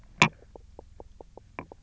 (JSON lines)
{"label": "biophony, knock croak", "recorder": "SoundTrap 300"}